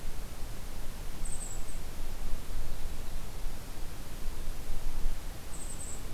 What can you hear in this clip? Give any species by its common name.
Golden-crowned Kinglet